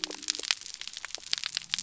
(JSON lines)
{"label": "biophony", "recorder": "SoundTrap 300"}